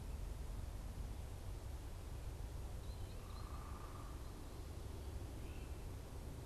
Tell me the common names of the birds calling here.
American Goldfinch, unidentified bird